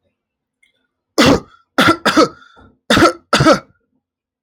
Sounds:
Cough